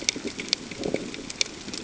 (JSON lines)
{"label": "ambient", "recorder": "HydroMoth"}